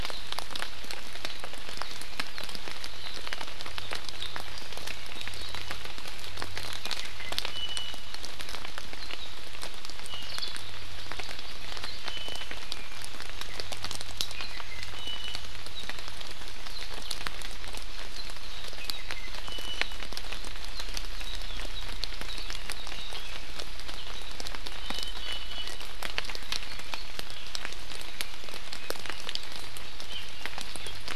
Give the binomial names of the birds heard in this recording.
Drepanis coccinea